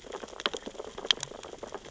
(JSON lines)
{"label": "biophony, sea urchins (Echinidae)", "recorder": "SoundTrap 600 or HydroMoth"}